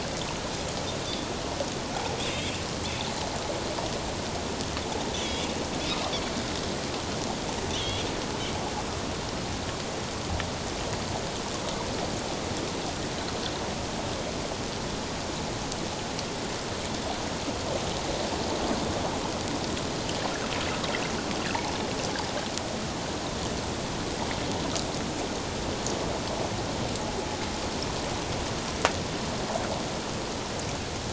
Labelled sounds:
5.1	5.5	Pacific white-sided dolphin, 3.2 to 3.7 kHz
7.7	8.1	Pacific white-sided dolphin, 2.8 to 3.8 kHz

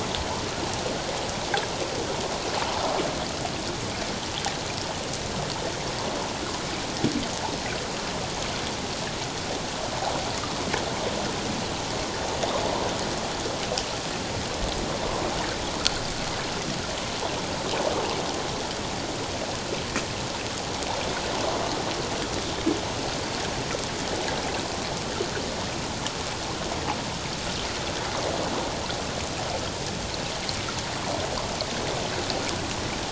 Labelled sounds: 15.0	15.3	water noise, 0.91 to 1.1 kHz

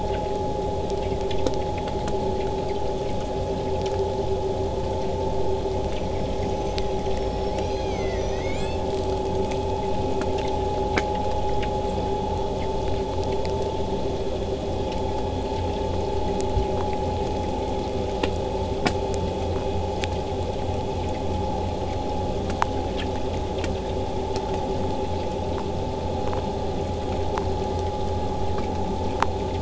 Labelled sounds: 5.6	8.9	killer whale, southern resident, 0.89 to 8.0 kHz

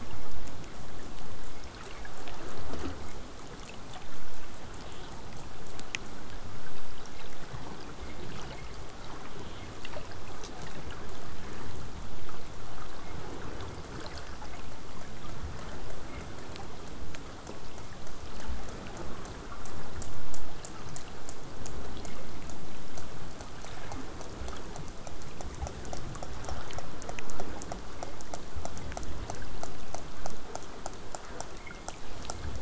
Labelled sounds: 0.0	5.0	vessel noise, 0 to 8.0 kHz
19.2	23.5	killer whale, southern resident, J pod, 2.2 to 8.0 kHz

